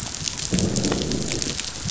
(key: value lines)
label: biophony, growl
recorder: SoundTrap 500